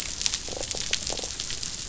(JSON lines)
{"label": "biophony", "recorder": "SoundTrap 500"}